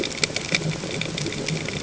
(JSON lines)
{"label": "ambient", "recorder": "HydroMoth"}